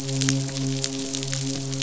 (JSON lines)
{"label": "biophony, midshipman", "recorder": "SoundTrap 500"}